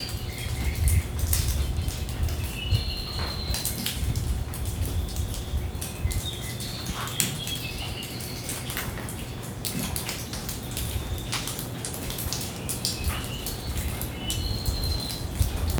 Does a lion growl?
no